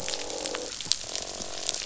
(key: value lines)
label: biophony, croak
recorder: SoundTrap 500